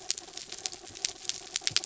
{"label": "anthrophony, mechanical", "recorder": "SoundTrap 300"}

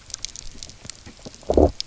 {"label": "biophony, low growl", "recorder": "SoundTrap 300"}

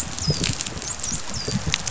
{"label": "biophony, dolphin", "recorder": "SoundTrap 500"}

